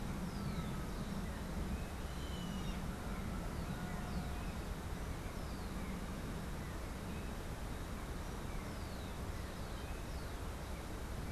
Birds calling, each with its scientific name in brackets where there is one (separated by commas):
Rufous-collared Sparrow (Zonotrichia capensis), Yellow-headed Caracara (Milvago chimachima)